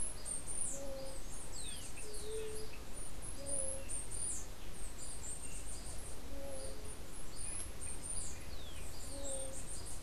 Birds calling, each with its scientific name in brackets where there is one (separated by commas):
unidentified bird, Chestnut-capped Brushfinch (Arremon brunneinucha)